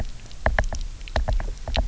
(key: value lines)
label: biophony, knock
recorder: SoundTrap 300